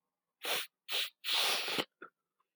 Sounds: Sniff